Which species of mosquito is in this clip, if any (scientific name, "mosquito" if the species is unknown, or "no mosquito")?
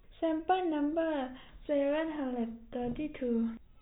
no mosquito